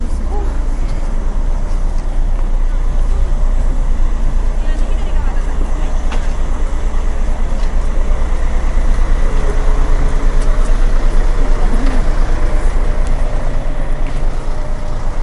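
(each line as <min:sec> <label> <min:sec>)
0:00.0 Voices and engine noise in the street. 0:15.2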